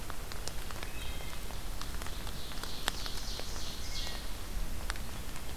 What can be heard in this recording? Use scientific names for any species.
Hylocichla mustelina, Seiurus aurocapilla